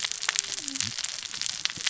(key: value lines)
label: biophony, cascading saw
recorder: SoundTrap 600 or HydroMoth